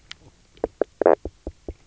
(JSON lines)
{"label": "biophony, knock croak", "recorder": "SoundTrap 300"}